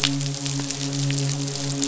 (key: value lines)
label: biophony, midshipman
recorder: SoundTrap 500